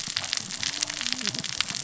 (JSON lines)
{"label": "biophony, cascading saw", "recorder": "SoundTrap 600 or HydroMoth"}